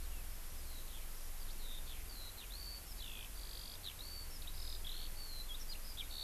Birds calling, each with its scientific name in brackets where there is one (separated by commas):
Eurasian Skylark (Alauda arvensis)